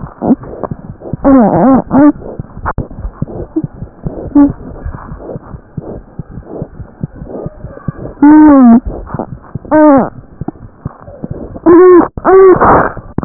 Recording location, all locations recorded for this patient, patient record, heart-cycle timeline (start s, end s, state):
pulmonary valve (PV)
pulmonary valve (PV)
#Age: Infant
#Sex: Male
#Height: 66.0 cm
#Weight: 8.42 kg
#Pregnancy status: False
#Murmur: Unknown
#Murmur locations: nan
#Most audible location: nan
#Systolic murmur timing: nan
#Systolic murmur shape: nan
#Systolic murmur grading: nan
#Systolic murmur pitch: nan
#Systolic murmur quality: nan
#Diastolic murmur timing: nan
#Diastolic murmur shape: nan
#Diastolic murmur grading: nan
#Diastolic murmur pitch: nan
#Diastolic murmur quality: nan
#Outcome: Abnormal
#Campaign: 2015 screening campaign
0.00	5.50	unannotated
5.50	5.61	S1
5.61	5.75	systole
5.75	5.82	S2
5.82	5.95	diastole
5.95	6.05	S1
6.05	6.17	systole
6.17	6.25	S2
6.25	6.34	diastole
6.34	6.43	S1
6.43	6.58	systole
6.58	6.67	S2
6.67	6.75	diastole
6.75	6.88	S1
6.88	7.00	systole
7.00	7.10	S2
7.10	7.18	diastole
7.18	7.27	S1
7.27	7.42	systole
7.42	7.51	S2
7.51	7.61	diastole
7.61	7.69	S1
7.69	7.82	systole
7.82	7.93	S2
7.93	13.25	unannotated